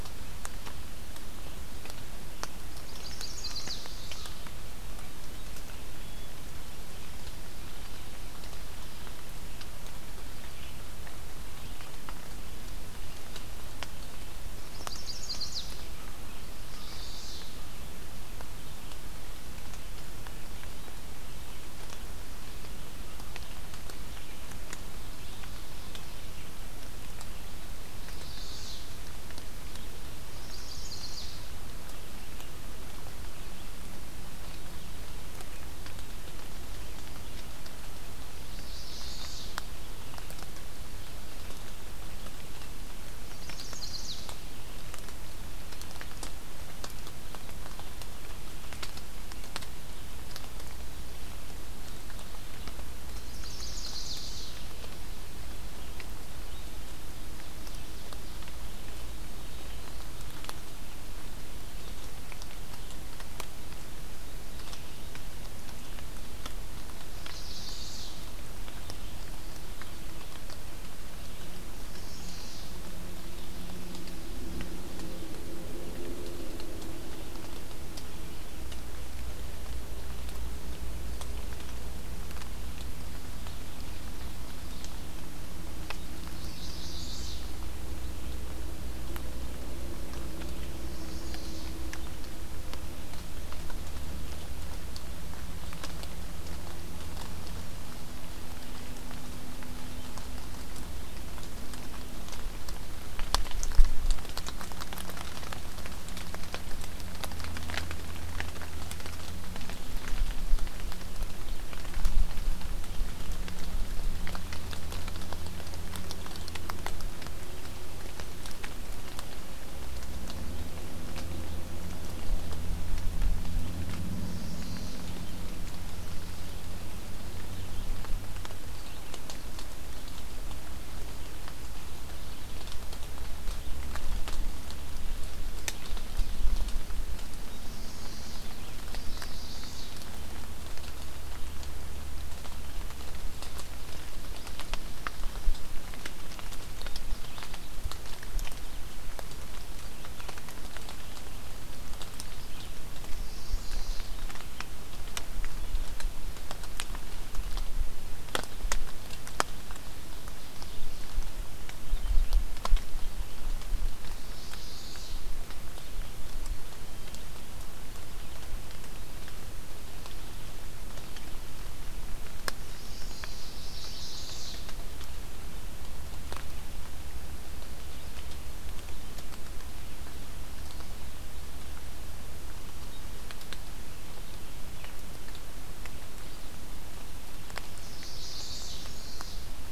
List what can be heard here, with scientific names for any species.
Setophaga pensylvanica, Vireo olivaceus